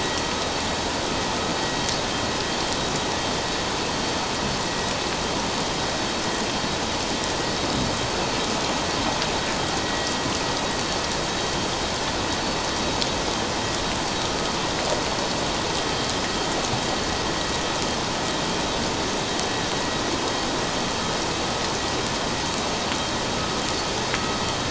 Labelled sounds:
9.8	10.1	vessel noise, 1.9 to 2.0 kHz

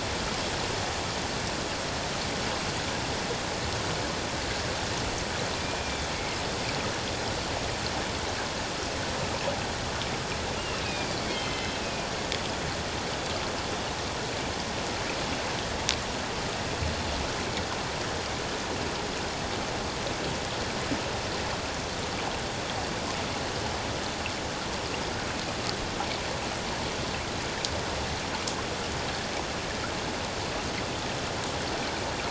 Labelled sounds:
5.6	6.0	killer whale, northern resident, A clan, AA subclan, call N04, 2.2 to 2.5 kHz
10.8	12.1	killer whale, northern resident, A clan, AA subclan, call N04, 2.0 to 4.8 kHz

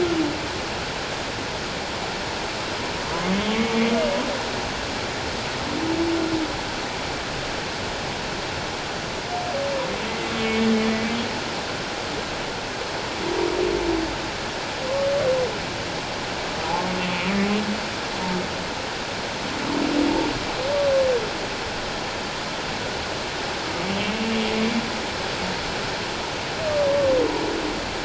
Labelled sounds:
16.6	16.8	humpback whale, 0.78 to 0.94 kHz

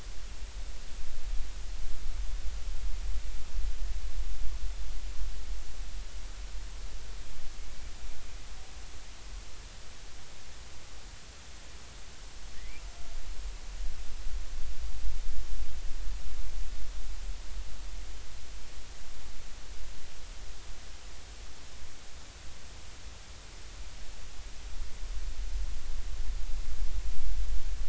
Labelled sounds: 12.6	12.8	killer whale, Bigg's (transient), 1.8 to 2.5 kHz

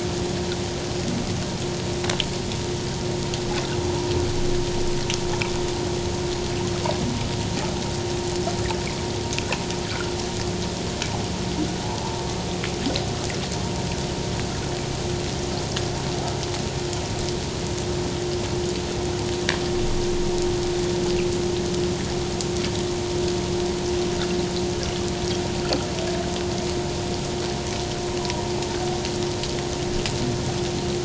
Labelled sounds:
9.9	10.2	water noise, 1.2 to 1.6 kHz
11.8	12.3	humpback whale, 0.81 to 1.0 kHz

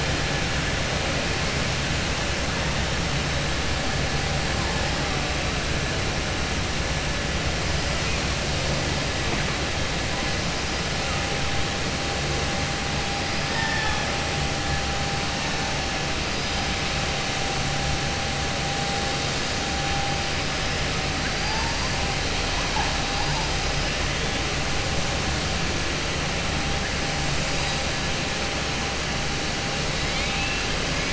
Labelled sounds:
30.0	30.6	killer whale, southern resident, 2.1 to 4.4 kHz

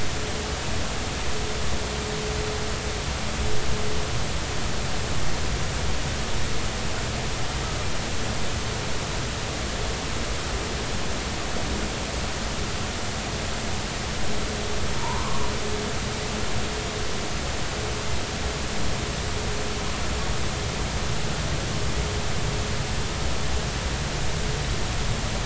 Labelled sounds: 14.9	15.5	humpback whale, 0.86 to 1.2 kHz

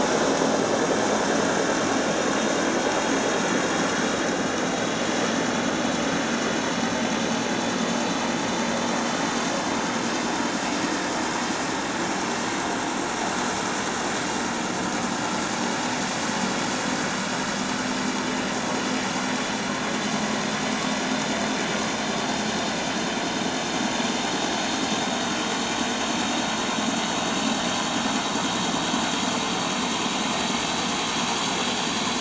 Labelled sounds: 22.3	22.6	vessel noise, 5.3 to 5.4 kHz

